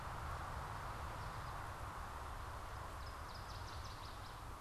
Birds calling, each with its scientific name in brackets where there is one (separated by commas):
Northern Waterthrush (Parkesia noveboracensis), American Goldfinch (Spinus tristis)